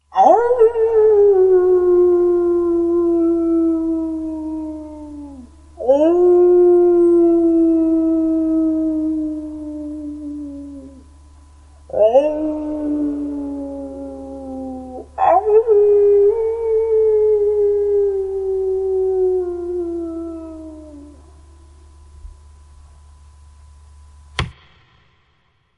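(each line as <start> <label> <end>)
0.1 A wolf howls loudly in the distance. 2.4
2.6 Echoing wolf howls. 5.8
5.9 A wolf howls loudly in the distance. 9.3
9.2 Wolf howls echo. 11.8
12.0 Distant loud howls of a wolf. 13.2
13.2 Wolf howls echoing. 15.1
15.2 Distant loud howls of a wolf. 17.9
18.1 Wolf howls echo. 21.6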